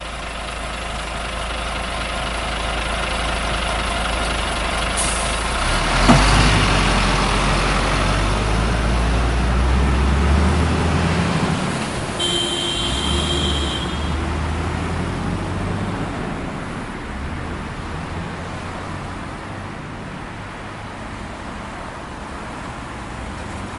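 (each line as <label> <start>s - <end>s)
The monotone sound of a truck engine running. 0.0s - 5.4s
An abrupt release of air as brakes adjust air pressure. 4.9s - 5.5s
A truck drives away, fading into the distance. 5.5s - 23.8s
A horn emits a high-pitched sound. 12.1s - 14.1s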